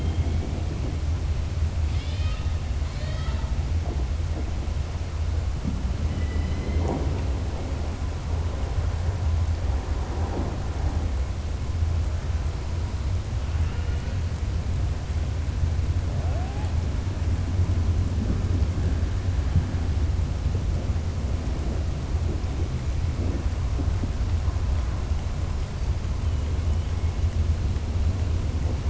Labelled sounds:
1.8	2.5	killer whale, southern resident, 1.3 to 5.5 kHz
2.8	3.5	killer whale, southern resident, 0.65 to 5.2 kHz
13.5	14.1	killer whale, southern resident, 1.4 to 3.0 kHz

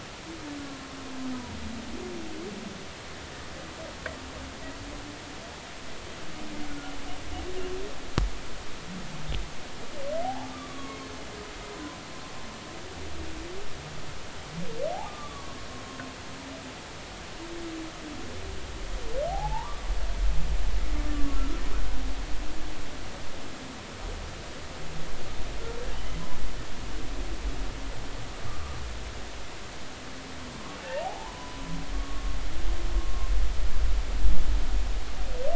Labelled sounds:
6.7	7.0	humpback whale, 1.3 to 1.5 kHz
10.2	11.1	humpback whale, 0.80 to 4.4 kHz
11.7	12.0	humpback whale, 0.96 to 1.1 kHz
15.0	15.6	humpback whale, 1.0 to 1.3 kHz
19.3	19.8	humpback whale, 0.80 to 1.2 kHz
21.3	21.6	humpback whale, 1.2 to 1.4 kHz
28.5	28.8	humpback whale, 1.1 to 1.2 kHz
31.0	32.4	humpback whale, 0.80 to 1.2 kHz

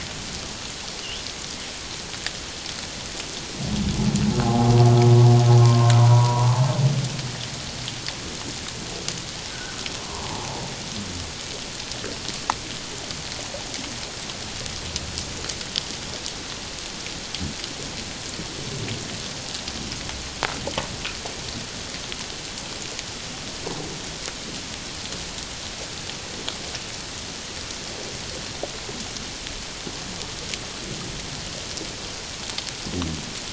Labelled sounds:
4.4	4.7	humpback whale, 0.78 to 0.94 kHz
5.6	6.5	humpback whale, 0.91 to 1.2 kHz
9.5	10.6	humpback whale, 0.78 to 1.6 kHz

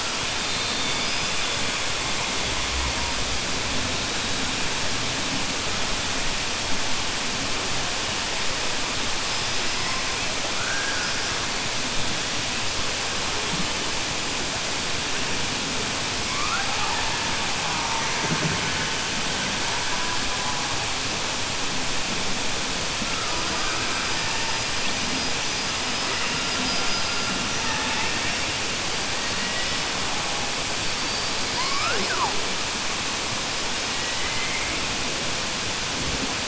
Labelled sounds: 34.1	34.7	killer whale, southern resident, 1.2 to 3.1 kHz

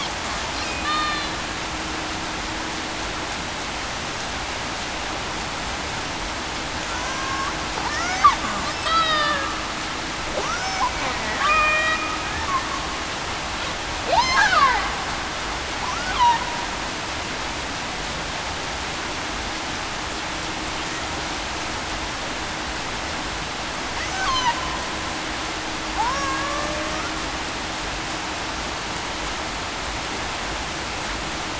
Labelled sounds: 0.8	1.2	killer whale, Bigg's (transient), 1.1 to 3.1 kHz
7.0	7.5	killer whale, Bigg's (transient), 1.0 to 1.2 kHz
7.8	8.2	killer whale, Bigg's (transient), 1.2 to 1.5 kHz
8.8	9.5	killer whale, Bigg's (transient), 0.52 to 4.0 kHz
11.4	11.8	killer whale, Bigg's (transient), 1.1 to 1.3 kHz
14.0	14.4	killer whale, Bigg's (transient), 0.47 to 1.1 kHz
26.0	26.9	killer whale, Bigg's (transient), 0.54 to 1.1 kHz

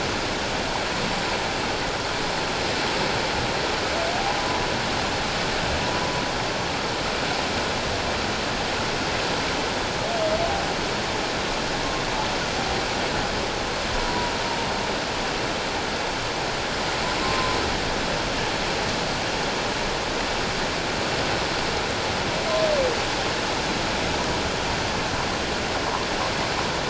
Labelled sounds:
14.0	14.3	humpback whale, 0.91 to 1.1 kHz
17.2	17.6	humpback whale, 0.97 to 1.1 kHz

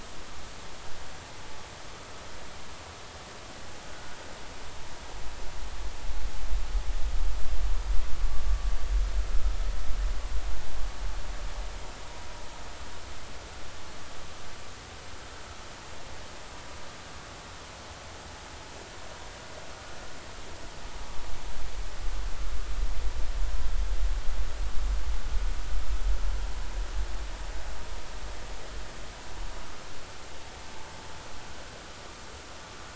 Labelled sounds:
3.9	4.1	vessel noise, 1.4 to 1.5 kHz

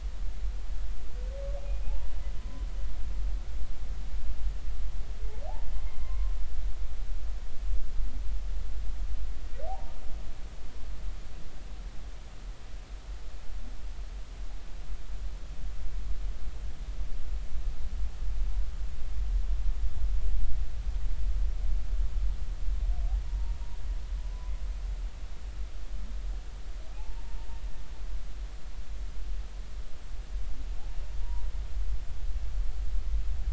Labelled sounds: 1.9	2.7	humpback whale, 0.80 to 1.1 kHz
6.0	6.3	humpback whale, 0.99 to 1.2 kHz
9.7	9.9	humpback whale, 0.80 to 0.99 kHz
23.2	23.6	humpback whale, 0.86 to 1.0 kHz
27.0	27.2	humpback whale, 0.80 to 0.99 kHz
31.2	31.5	humpback whale, 0.90 to 1.0 kHz

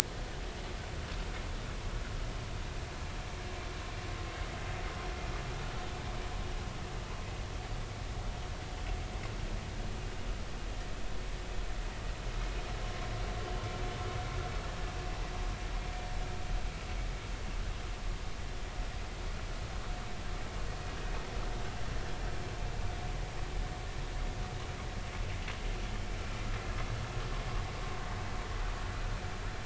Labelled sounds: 12.8	13.1	vessel noise, 1.0 to 1.1 kHz

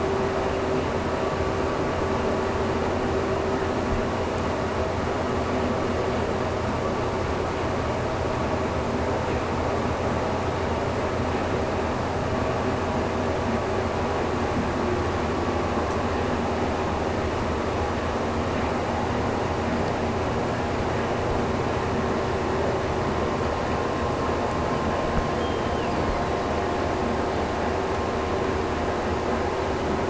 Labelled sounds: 25.4	26.9	killer whale, Bigg's (transient), Gulf of Alaska transient, 1.7 to 5.3 kHz

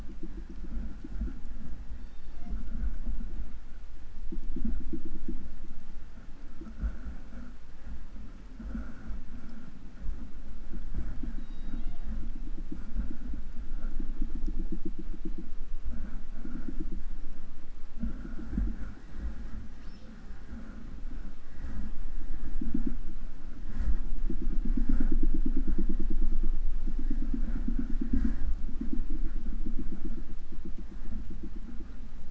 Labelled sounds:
1.9	2.8	killer whale, southern resident, J pod, call S01, 0.44 to 6.7 kHz
11.2	12.3	killer whale, southern resident, J pod, call S01, 0.43 to 6.2 kHz
19.6	20.3	killer whale, southern resident, 0.34 to 6.4 kHz

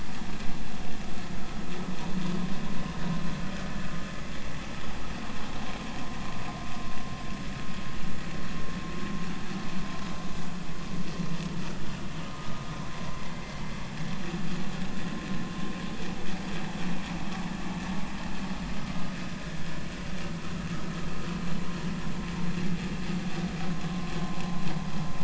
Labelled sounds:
12.3	12.6	vessel noise, 0.99 to 1.3 kHz
13.3	13.6	vessel noise, 2.0 to 2.1 kHz

